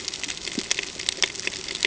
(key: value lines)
label: ambient
recorder: HydroMoth